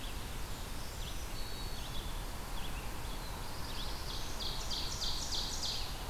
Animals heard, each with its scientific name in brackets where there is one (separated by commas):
Blackburnian Warbler (Setophaga fusca), Red-eyed Vireo (Vireo olivaceus), Black-capped Chickadee (Poecile atricapillus), Ovenbird (Seiurus aurocapilla), Black-throated Blue Warbler (Setophaga caerulescens), Black-throated Green Warbler (Setophaga virens)